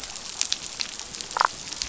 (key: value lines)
label: biophony, damselfish
recorder: SoundTrap 500